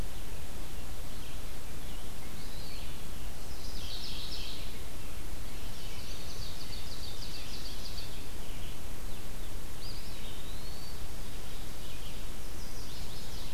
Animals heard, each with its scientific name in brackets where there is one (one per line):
Ovenbird (Seiurus aurocapilla)
Eastern Wood-Pewee (Contopus virens)
Mourning Warbler (Geothlypis philadelphia)
Red-eyed Vireo (Vireo olivaceus)
Chestnut-sided Warbler (Setophaga pensylvanica)